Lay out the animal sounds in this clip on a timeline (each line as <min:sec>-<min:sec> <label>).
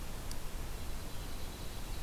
0:00.6-0:02.0 Dark-eyed Junco (Junco hyemalis)